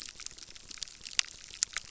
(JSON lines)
{"label": "biophony, crackle", "recorder": "SoundTrap 600"}